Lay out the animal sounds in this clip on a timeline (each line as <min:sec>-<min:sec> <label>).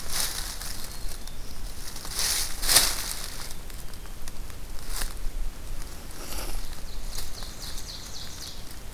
0:00.4-0:02.0 Black-throated Green Warbler (Setophaga virens)
0:06.6-0:08.9 Ovenbird (Seiurus aurocapilla)